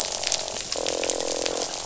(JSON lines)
{"label": "biophony, croak", "recorder": "SoundTrap 500"}